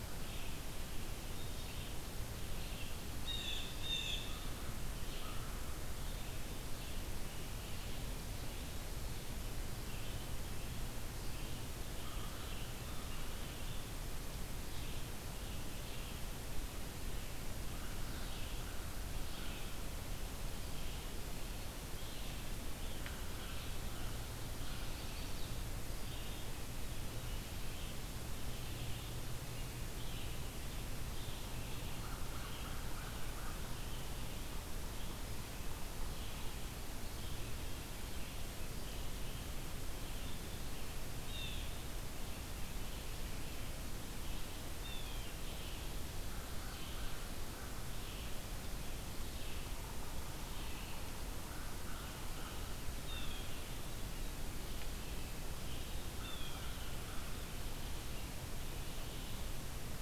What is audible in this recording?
Red-eyed Vireo, Blue Jay, American Crow, Chestnut-sided Warbler